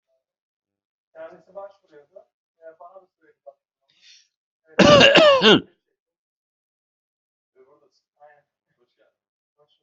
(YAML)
expert_labels:
- quality: ok
  cough_type: dry
  dyspnea: false
  wheezing: false
  stridor: false
  choking: false
  congestion: false
  nothing: true
  diagnosis: COVID-19
  severity: mild
age: 49
gender: male
respiratory_condition: false
fever_muscle_pain: false
status: healthy